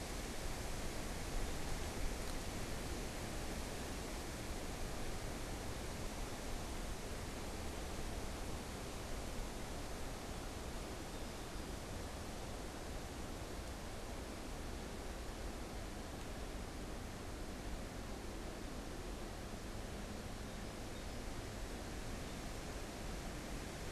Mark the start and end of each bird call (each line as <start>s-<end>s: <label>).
20.4s-21.4s: Song Sparrow (Melospiza melodia)